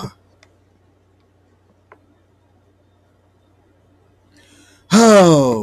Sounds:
Sigh